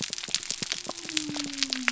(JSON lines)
{"label": "biophony", "recorder": "SoundTrap 300"}